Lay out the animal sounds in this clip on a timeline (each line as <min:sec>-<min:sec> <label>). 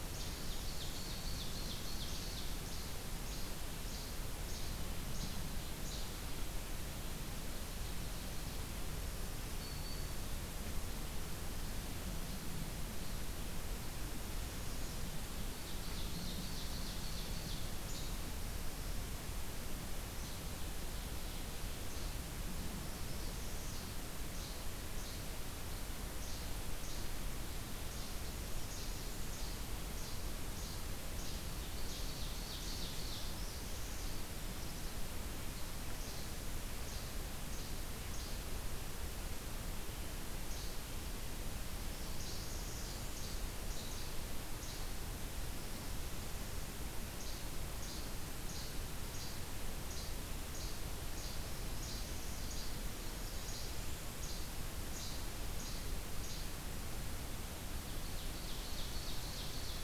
0:00.0-0:02.6 Ovenbird (Seiurus aurocapilla)
0:00.1-0:00.4 Least Flycatcher (Empidonax minimus)
0:02.0-0:06.1 Least Flycatcher (Empidonax minimus)
0:09.3-0:10.3 Black-throated Green Warbler (Setophaga virens)
0:15.4-0:17.9 Ovenbird (Seiurus aurocapilla)
0:17.6-0:18.2 Least Flycatcher (Empidonax minimus)
0:20.1-0:20.4 Least Flycatcher (Empidonax minimus)
0:21.8-0:22.2 Least Flycatcher (Empidonax minimus)
0:22.9-0:23.9 Northern Parula (Setophaga americana)
0:23.5-0:25.1 Least Flycatcher (Empidonax minimus)
0:26.1-0:27.2 Least Flycatcher (Empidonax minimus)
0:27.9-0:32.9 Least Flycatcher (Empidonax minimus)
0:31.4-0:33.4 Ovenbird (Seiurus aurocapilla)
0:33.2-0:34.2 Northern Parula (Setophaga americana)
0:35.8-0:38.3 Least Flycatcher (Empidonax minimus)
0:40.5-0:40.7 Least Flycatcher (Empidonax minimus)
0:41.7-0:43.1 Northern Parula (Setophaga americana)
0:43.0-0:45.0 Least Flycatcher (Empidonax minimus)
0:47.0-0:52.7 Least Flycatcher (Empidonax minimus)
0:53.4-0:56.5 Least Flycatcher (Empidonax minimus)
0:57.9-0:59.8 Ovenbird (Seiurus aurocapilla)